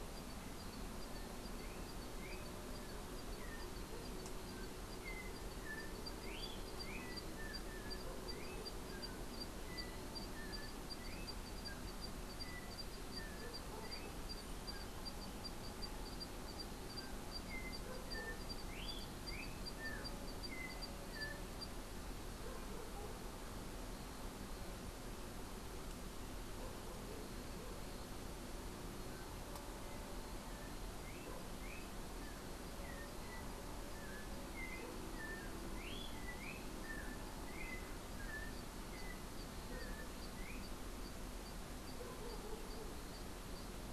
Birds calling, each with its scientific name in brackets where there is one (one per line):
Yellow-backed Oriole (Icterus chrysater)